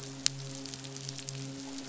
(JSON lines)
{"label": "biophony, midshipman", "recorder": "SoundTrap 500"}